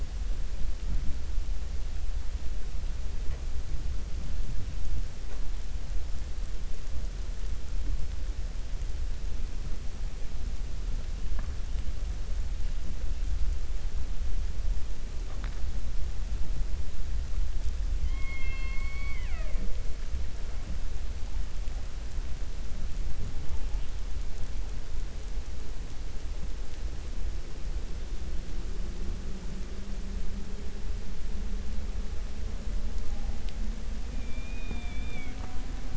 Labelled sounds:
18.0	19.7	killer whale, 0.29 to 4.5 kHz

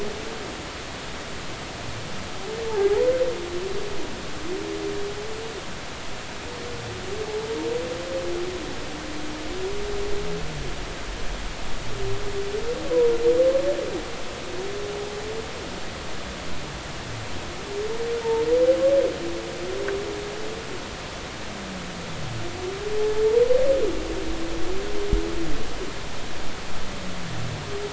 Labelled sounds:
2.7	3.1	humpback whale, 0.80 to 1.0 kHz
18.2	18.5	humpback whale, 0.83 to 0.96 kHz
23.0	23.2	humpback whale, 0.80 to 0.90 kHz

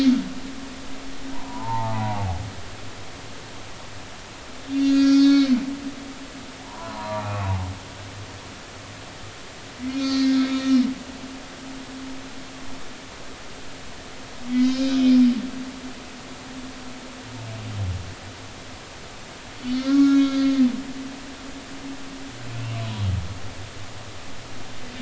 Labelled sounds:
1.3	2.3	humpback whale, 0.80 to 1.1 kHz
4.6	5.5	humpback whale, 1.3 to 6.2 kHz
6.6	7.4	humpback whale, 0.80 to 2.7 kHz
9.9	10.4	humpback whale, 1.8 to 4.6 kHz
14.5	15.9	humpback whale, 2.0 to 5.1 kHz
19.8	20.6	humpback whale, 1.0 to 4.7 kHz

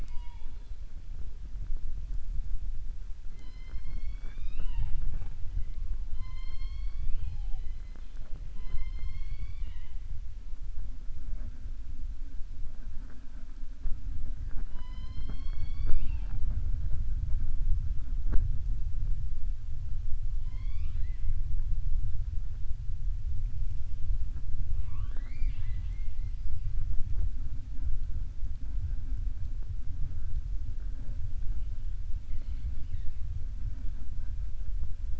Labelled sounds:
20.3	21.3	killer whale, southern resident, 1.0 to 5.3 kHz
24.7	26.2	killer whale, southern resident, 0.39 to 4.7 kHz
32.2	33.2	killer whale, southern resident, 0.60 to 5.0 kHz

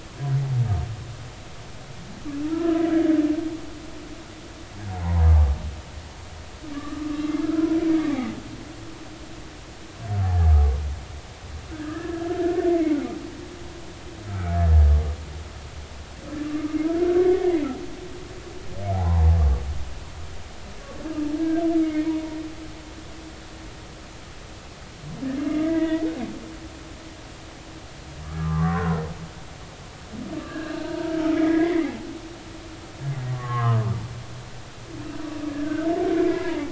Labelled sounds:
2.5	2.8	humpback whale, 1.2 to 1.4 kHz
4.9	5.2	humpback whale, 0.80 to 1.1 kHz
6.7	8.1	humpback whale, 1.1 to 2.8 kHz
11.8	14.8	humpback whale, 1.2 to 1.8 kHz
16.4	16.8	humpback whale, 1.2 to 1.3 kHz
18.9	19.2	humpback whale, 0.80 to 1.1 kHz
21.4	22.1	humpback whale, 1.5 to 2.3 kHz
25.5	26.0	humpback whale, 0.93 to 2.3 kHz
28.4	29.0	humpback whale, 0.96 to 1.3 kHz
30.3	32.1	humpback whale, 0.80 to 4.2 kHz
33.3	33.8	humpback whale, 0.99 to 2.2 kHz
35.6	36.7	humpback whale, 0.83 to 2.1 kHz

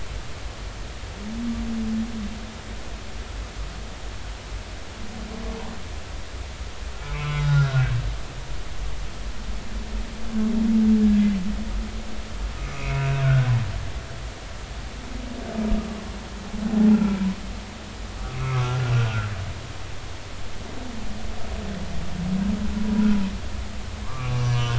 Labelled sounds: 7.0	7.8	humpback whale, 0.99 to 4.0 kHz
12.6	13.5	humpback whale, 1.2 to 2.8 kHz
16.7	17.3	humpback whale, 0.80 to 2.4 kHz
18.4	19.3	humpback whale, 1.0 to 2.3 kHz
24.0	24.7	humpback whale, 0.99 to 6.1 kHz

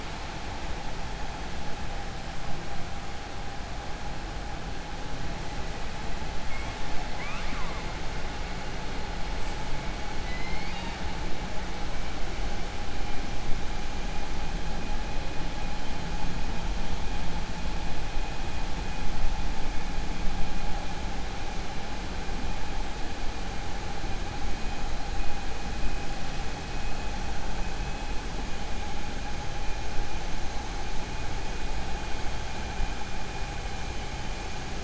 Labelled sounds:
10.2	11.0	killer whale, 0.91 to 5.0 kHz

